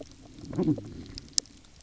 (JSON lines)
{"label": "biophony", "recorder": "SoundTrap 300"}